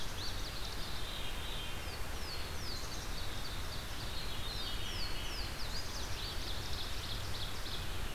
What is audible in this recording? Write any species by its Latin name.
Parkesia motacilla, Poecile atricapillus, Catharus fuscescens, Seiurus aurocapilla